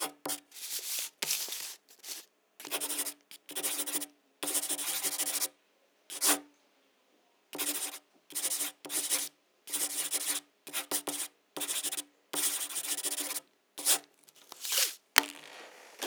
Is someone yelling?
no